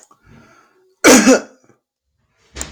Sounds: Cough